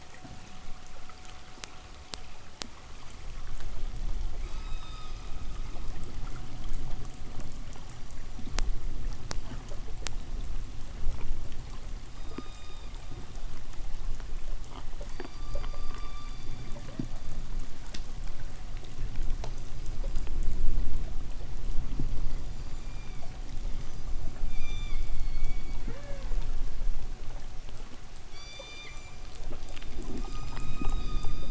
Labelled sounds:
4.3	5.8	killer whale, K pod, call S16, 0.93 to 8.0 kHz
7.6	9.0	killer whale, K pod, call S16, 4.4 to 8.0 kHz
11.9	13.1	killer whale, K pod, call S16, 0.98 to 7.8 kHz
14.9	17.4	killer whale, K pod, call S16, 0.80 to 8.0 kHz
19.4	22.5	killer whale, K pod, call S16, 4.3 to 8.0 kHz
22.4	25.9	killer whale, K pod, 0.84 to 8.0 kHz
28.2	31.4	killer whale, K pod, 0.84 to 8.0 kHz

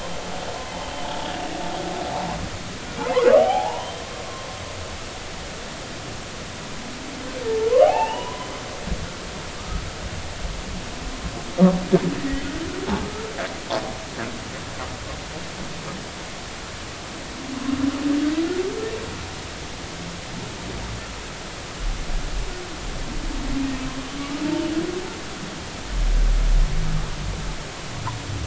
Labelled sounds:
3.4	3.9	humpback whale, 0.80 to 1.1 kHz
7.8	8.5	humpback whale, 0.80 to 3.0 kHz
9.6	9.8	humpback whale, 1.2 to 1.4 kHz
13.0	13.3	humpback whale, 1.2 to 1.4 kHz

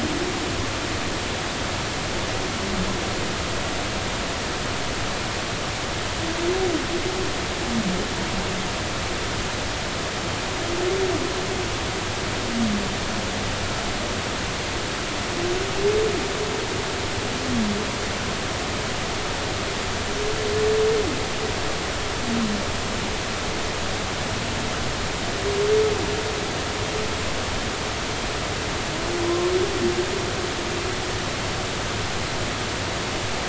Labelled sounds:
29.3	29.5	humpback whale, 0.96 to 1.1 kHz

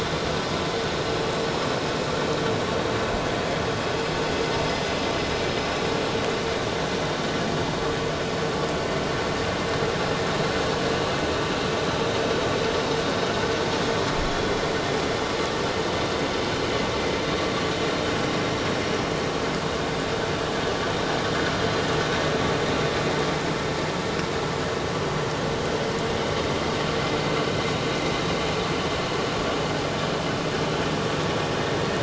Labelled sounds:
0.0	0.3	vessel noise, 3.4 to 3.5 kHz

